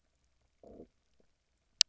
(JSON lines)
{"label": "biophony, low growl", "recorder": "SoundTrap 300"}